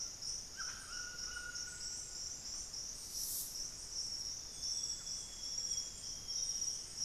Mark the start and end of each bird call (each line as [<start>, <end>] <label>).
[0.00, 2.62] White-throated Toucan (Ramphastos tucanus)
[0.00, 7.05] Golden-crowned Spadebill (Platyrinchus coronatus)
[4.12, 7.02] Amazonian Grosbeak (Cyanoloxia rothschildii)